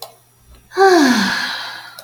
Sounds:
Sigh